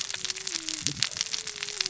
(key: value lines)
label: biophony, cascading saw
recorder: SoundTrap 600 or HydroMoth